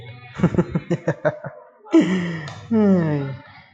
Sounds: Laughter